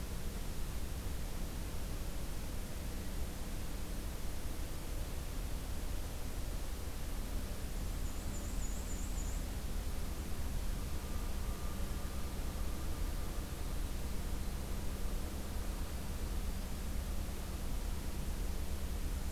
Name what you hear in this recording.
Black-and-white Warbler